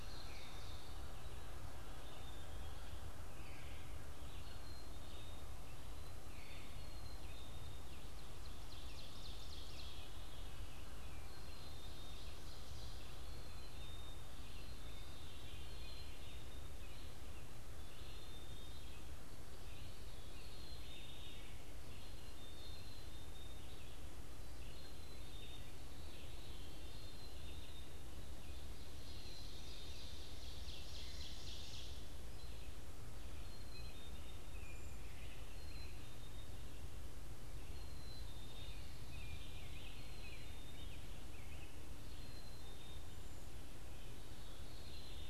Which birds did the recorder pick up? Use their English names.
Black-capped Chickadee, Ovenbird, Veery, Red-eyed Vireo